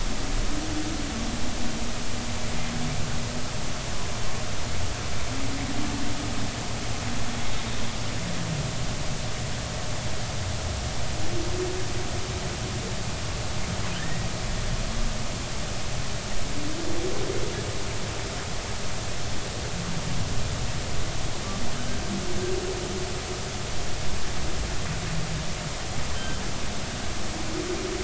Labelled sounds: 13.9	14.3	humpback whale, 1.5 to 2.0 kHz

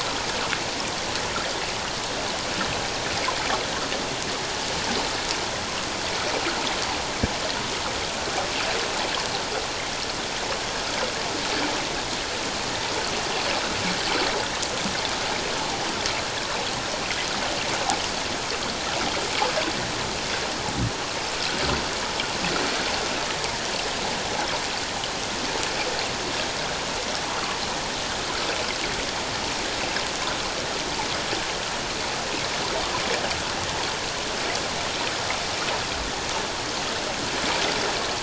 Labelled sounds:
27.3	27.6	water noise, 0.94 to 1.3 kHz

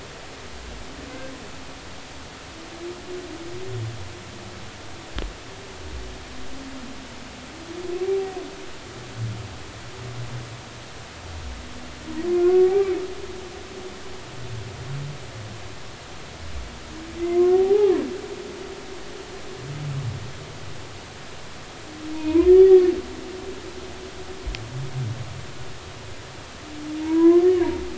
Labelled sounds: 12.4	13.9	humpback whale, 0.80 to 2.5 kHz
17.2	18.0	humpback whale, 0.80 to 1.1 kHz
22.1	22.5	humpback whale, 0.90 to 1.1 kHz
27.0	27.5	humpback whale, 0.83 to 1.8 kHz

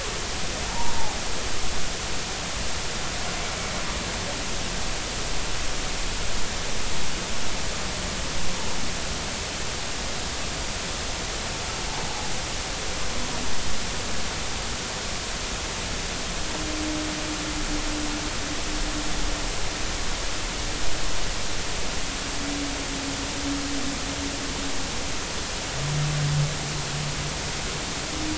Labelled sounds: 0.7	1.2	humpback whale, 0.80 to 1.0 kHz

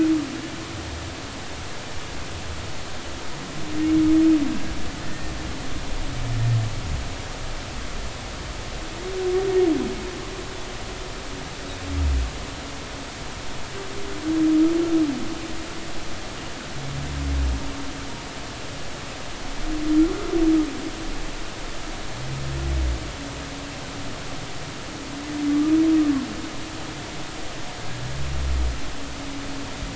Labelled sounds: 5.0	5.3	humpback whale, 1.7 to 2.0 kHz

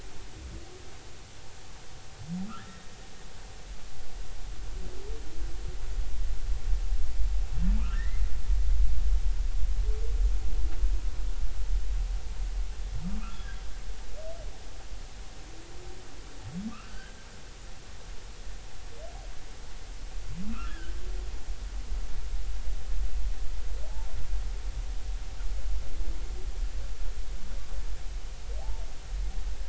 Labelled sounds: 2.5	2.9	humpback whale, 1.2 to 1.9 kHz
7.9	8.2	humpback whale, 1.5 to 2.2 kHz
13.2	13.5	humpback whale, 1.1 to 1.4 kHz
16.7	17.2	humpback whale, 1.1 to 1.8 kHz
20.5	20.9	humpback whale, 1.2 to 1.8 kHz

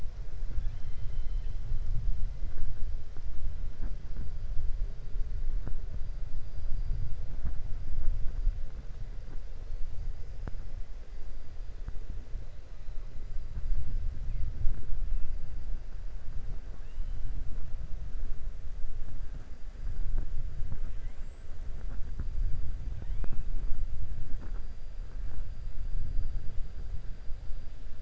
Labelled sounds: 16.7	17.2	killer whale, 1.7 to 4.0 kHz

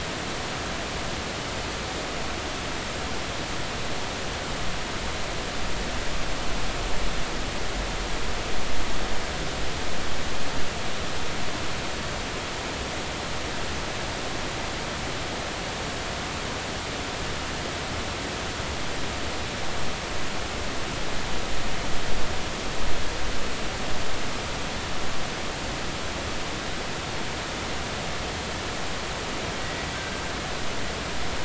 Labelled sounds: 29.9	30.2	killer whale, Bigg's (transient), 1.5 to 1.6 kHz

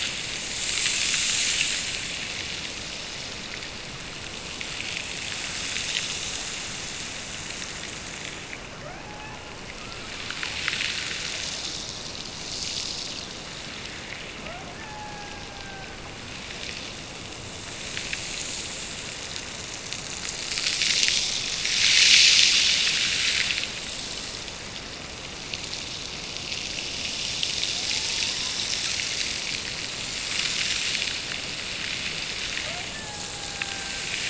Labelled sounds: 8.8	10.2	killer whale, Bigg's (transient), Gulf of Alaska transient, 0.41 to 2.8 kHz
14.4	16.1	killer whale, Bigg's (transient), Gulf of Alaska transient, 0.41 to 1.9 kHz
32.5	34.2	killer whale, Bigg's (transient), Gulf of Alaska transient, 0.48 to 1.9 kHz

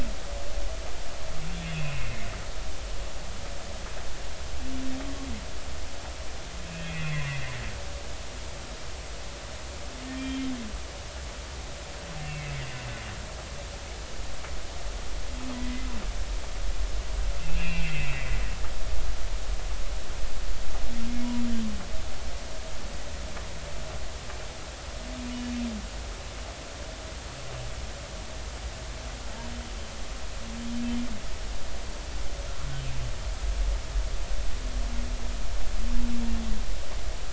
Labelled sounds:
1.6	2.3	humpback whale, 2.0 to 2.8 kHz
6.7	7.6	humpback whale, 1.8 to 2.8 kHz
10.1	10.5	humpback whale, 3.1 to 3.2 kHz
15.5	15.9	humpback whale, 1.9 to 2.1 kHz
17.4	18.2	humpback whale, 2.0 to 2.9 kHz

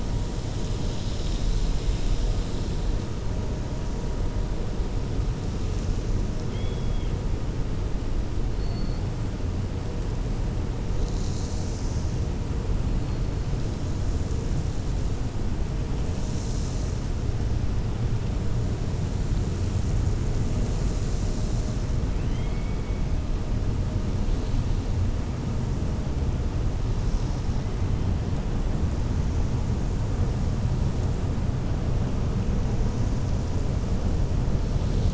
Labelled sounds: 6.4	7.1	killer whale, 2.0 to 3.5 kHz
22.1	23.0	killer whale, 2.0 to 3.3 kHz

